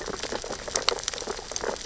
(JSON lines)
{"label": "biophony, sea urchins (Echinidae)", "recorder": "SoundTrap 600 or HydroMoth"}